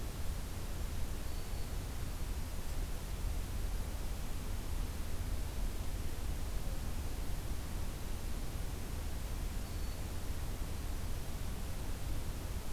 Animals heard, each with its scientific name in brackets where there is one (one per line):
Black-throated Green Warbler (Setophaga virens)